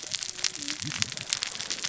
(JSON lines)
{"label": "biophony, cascading saw", "recorder": "SoundTrap 600 or HydroMoth"}